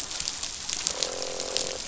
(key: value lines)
label: biophony, croak
recorder: SoundTrap 500